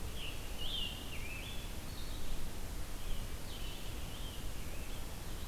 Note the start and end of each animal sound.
[0.00, 5.48] Red-eyed Vireo (Vireo olivaceus)
[0.01, 1.76] Scarlet Tanager (Piranga olivacea)
[2.92, 5.48] Scarlet Tanager (Piranga olivacea)

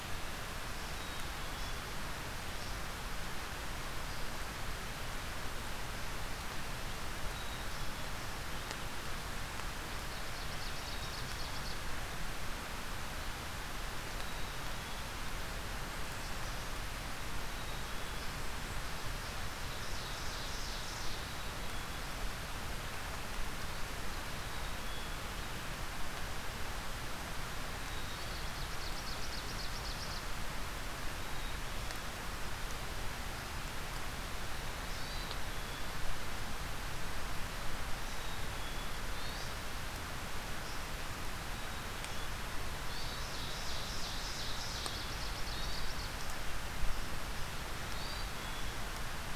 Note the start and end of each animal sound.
[0.90, 1.94] Black-capped Chickadee (Poecile atricapillus)
[7.24, 8.24] Black-capped Chickadee (Poecile atricapillus)
[9.97, 11.96] Ovenbird (Seiurus aurocapilla)
[10.76, 11.79] Black-capped Chickadee (Poecile atricapillus)
[14.04, 15.26] Black-capped Chickadee (Poecile atricapillus)
[17.27, 18.51] Black-capped Chickadee (Poecile atricapillus)
[19.77, 21.29] Ovenbird (Seiurus aurocapilla)
[21.05, 22.19] Black-capped Chickadee (Poecile atricapillus)
[24.26, 25.35] Black-capped Chickadee (Poecile atricapillus)
[27.72, 28.87] Black-capped Chickadee (Poecile atricapillus)
[28.19, 30.28] Ovenbird (Seiurus aurocapilla)
[31.08, 32.26] Black-capped Chickadee (Poecile atricapillus)
[34.76, 35.45] Hermit Thrush (Catharus guttatus)
[34.81, 35.96] Black-capped Chickadee (Poecile atricapillus)
[38.11, 39.04] Black-capped Chickadee (Poecile atricapillus)
[38.80, 39.83] Hermit Thrush (Catharus guttatus)
[42.68, 43.48] Hermit Thrush (Catharus guttatus)
[43.03, 46.46] Ovenbird (Seiurus aurocapilla)
[45.41, 46.25] Hermit Thrush (Catharus guttatus)
[47.60, 48.37] Hermit Thrush (Catharus guttatus)

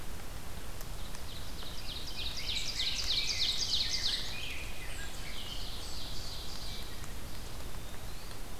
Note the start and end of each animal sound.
[1.01, 7.03] Ovenbird (Seiurus aurocapilla)
[1.83, 5.24] Rose-breasted Grosbeak (Pheucticus ludovicianus)
[7.18, 8.41] Eastern Wood-Pewee (Contopus virens)

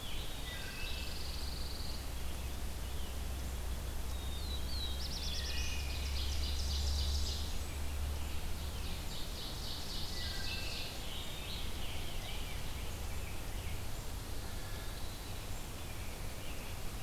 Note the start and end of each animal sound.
[0.00, 1.19] Scarlet Tanager (Piranga olivacea)
[0.37, 1.23] Wood Thrush (Hylocichla mustelina)
[0.38, 2.09] Pine Warbler (Setophaga pinus)
[4.04, 5.08] Black-capped Chickadee (Poecile atricapillus)
[4.09, 6.11] Black-throated Blue Warbler (Setophaga caerulescens)
[5.10, 7.63] Ovenbird (Seiurus aurocapilla)
[5.16, 6.23] Wood Thrush (Hylocichla mustelina)
[6.29, 7.84] Blackburnian Warbler (Setophaga fusca)
[7.95, 11.01] Ovenbird (Seiurus aurocapilla)
[10.06, 11.04] Wood Thrush (Hylocichla mustelina)
[10.50, 12.53] Scarlet Tanager (Piranga olivacea)
[11.50, 13.88] Rose-breasted Grosbeak (Pheucticus ludovicianus)

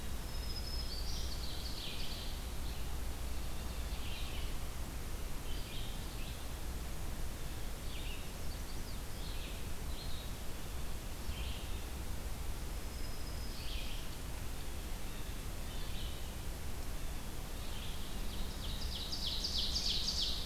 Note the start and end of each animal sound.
[0.18, 1.38] Black-throated Green Warbler (Setophaga virens)
[0.80, 2.31] Ovenbird (Seiurus aurocapilla)
[1.64, 20.45] Red-eyed Vireo (Vireo olivaceus)
[8.17, 9.07] Chestnut-sided Warbler (Setophaga pensylvanica)
[12.63, 14.14] Black-throated Green Warbler (Setophaga virens)
[14.45, 16.07] Blue Jay (Cyanocitta cristata)
[18.11, 20.45] Ovenbird (Seiurus aurocapilla)

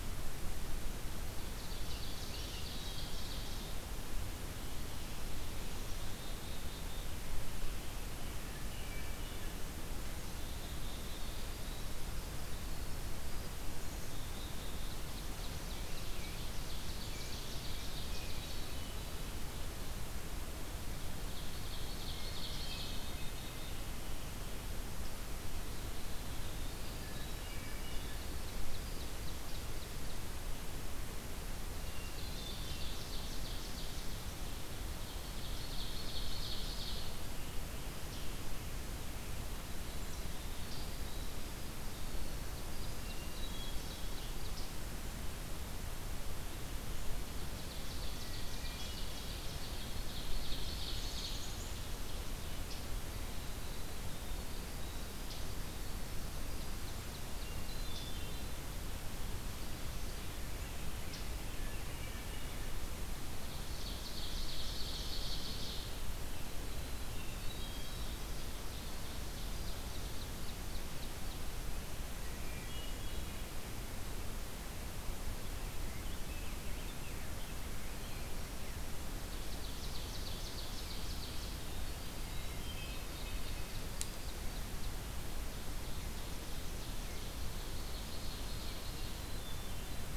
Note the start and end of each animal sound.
[1.16, 3.74] Ovenbird (Seiurus aurocapilla)
[1.68, 2.88] Scarlet Tanager (Piranga olivacea)
[5.65, 7.12] Black-capped Chickadee (Poecile atricapillus)
[8.26, 9.63] Hermit Thrush (Catharus guttatus)
[9.88, 11.83] Black-capped Chickadee (Poecile atricapillus)
[11.31, 13.74] Winter Wren (Troglodytes hiemalis)
[13.70, 15.20] Black-capped Chickadee (Poecile atricapillus)
[14.88, 18.64] Ovenbird (Seiurus aurocapilla)
[16.98, 18.18] Black-capped Chickadee (Poecile atricapillus)
[18.01, 19.42] Hermit Thrush (Catharus guttatus)
[20.97, 23.21] Ovenbird (Seiurus aurocapilla)
[22.19, 23.78] Hermit Thrush (Catharus guttatus)
[25.37, 28.10] Winter Wren (Troglodytes hiemalis)
[27.02, 28.29] Hermit Thrush (Catharus guttatus)
[27.92, 30.62] Ovenbird (Seiurus aurocapilla)
[31.74, 32.97] Hermit Thrush (Catharus guttatus)
[31.90, 34.24] Ovenbird (Seiurus aurocapilla)
[34.96, 37.19] Ovenbird (Seiurus aurocapilla)
[37.24, 38.88] Scarlet Tanager (Piranga olivacea)
[39.62, 43.02] Winter Wren (Troglodytes hiemalis)
[42.46, 44.58] Ovenbird (Seiurus aurocapilla)
[42.92, 44.27] Hermit Thrush (Catharus guttatus)
[47.39, 52.61] Ovenbird (Seiurus aurocapilla)
[48.41, 49.61] Hermit Thrush (Catharus guttatus)
[50.82, 51.86] Black-capped Chickadee (Poecile atricapillus)
[53.01, 57.07] Winter Wren (Troglodytes hiemalis)
[56.38, 58.06] Ovenbird (Seiurus aurocapilla)
[57.36, 58.63] Hermit Thrush (Catharus guttatus)
[61.34, 62.93] Hermit Thrush (Catharus guttatus)
[63.22, 66.10] Ovenbird (Seiurus aurocapilla)
[67.12, 68.30] Hermit Thrush (Catharus guttatus)
[68.25, 71.49] Ovenbird (Seiurus aurocapilla)
[72.13, 73.55] Hermit Thrush (Catharus guttatus)
[75.51, 78.35] Rose-breasted Grosbeak (Pheucticus ludovicianus)
[79.13, 81.73] Ovenbird (Seiurus aurocapilla)
[81.49, 83.57] Winter Wren (Troglodytes hiemalis)
[82.18, 83.40] Hermit Thrush (Catharus guttatus)
[82.98, 85.01] Ovenbird (Seiurus aurocapilla)
[85.61, 89.29] Ovenbird (Seiurus aurocapilla)
[88.88, 90.17] Hermit Thrush (Catharus guttatus)

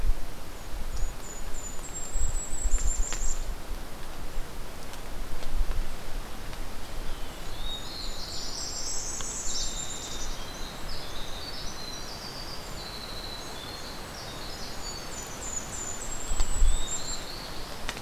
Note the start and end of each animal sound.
[0.71, 3.51] Golden-crowned Kinglet (Regulus satrapa)
[7.21, 10.40] Golden-crowned Kinglet (Regulus satrapa)
[7.39, 8.61] Black-throated Blue Warbler (Setophaga caerulescens)
[8.65, 9.75] Northern Parula (Setophaga americana)
[9.41, 15.51] Winter Wren (Troglodytes hiemalis)
[14.32, 17.30] Golden-crowned Kinglet (Regulus satrapa)
[16.58, 18.02] Black-throated Blue Warbler (Setophaga caerulescens)

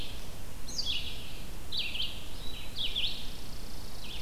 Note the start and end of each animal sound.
[0.00, 4.22] Red-eyed Vireo (Vireo olivaceus)
[2.75, 4.22] Chipping Sparrow (Spizella passerina)

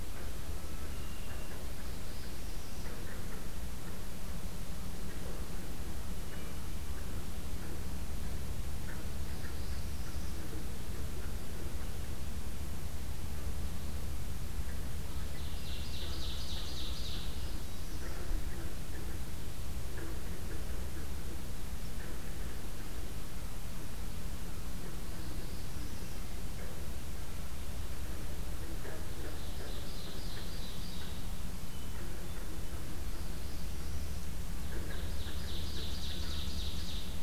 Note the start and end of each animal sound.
[0.60, 1.54] Red-winged Blackbird (Agelaius phoeniceus)
[1.80, 2.89] Northern Parula (Setophaga americana)
[6.17, 6.80] Hermit Thrush (Catharus guttatus)
[9.15, 10.42] Northern Parula (Setophaga americana)
[15.14, 16.16] Red-winged Blackbird (Agelaius phoeniceus)
[15.34, 17.30] Ovenbird (Seiurus aurocapilla)
[17.16, 18.22] Northern Parula (Setophaga americana)
[25.02, 26.22] Northern Parula (Setophaga americana)
[28.94, 31.19] Ovenbird (Seiurus aurocapilla)
[31.48, 32.62] Hermit Thrush (Catharus guttatus)
[32.92, 34.24] Northern Parula (Setophaga americana)
[34.70, 37.22] Ovenbird (Seiurus aurocapilla)

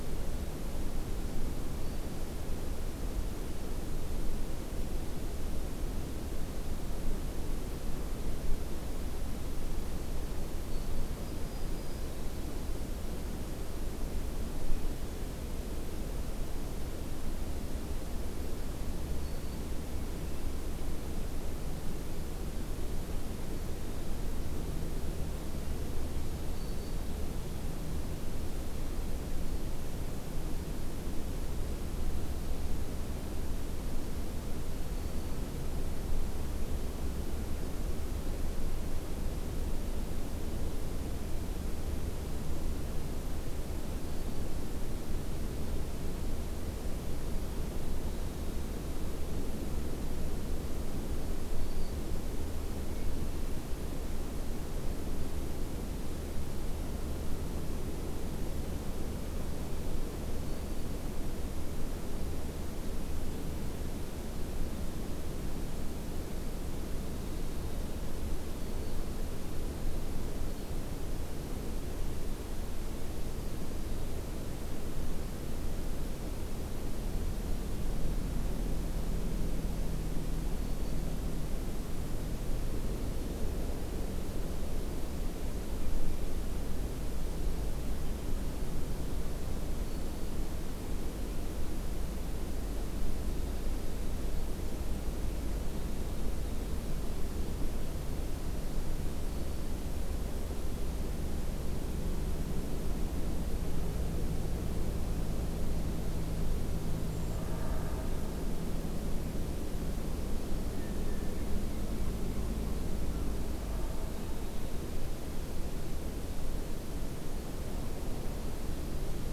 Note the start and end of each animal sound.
[1.38, 2.36] Black-throated Green Warbler (Setophaga virens)
[10.08, 12.31] Black-throated Green Warbler (Setophaga virens)
[18.96, 19.67] Black-throated Green Warbler (Setophaga virens)
[26.36, 27.12] Black-throated Green Warbler (Setophaga virens)
[34.64, 35.43] Black-throated Green Warbler (Setophaga virens)
[43.92, 44.47] Black-throated Green Warbler (Setophaga virens)
[51.39, 52.03] Black-throated Green Warbler (Setophaga virens)
[60.38, 61.03] Black-throated Green Warbler (Setophaga virens)
[68.44, 69.14] Black-throated Green Warbler (Setophaga virens)
[73.33, 74.35] Black-throated Green Warbler (Setophaga virens)
[80.42, 81.08] Black-throated Green Warbler (Setophaga virens)
[89.75, 90.47] Black-throated Green Warbler (Setophaga virens)
[98.87, 99.80] Black-throated Green Warbler (Setophaga virens)
[107.01, 107.45] Brown Creeper (Certhia americana)
[110.64, 111.41] Blue Jay (Cyanocitta cristata)

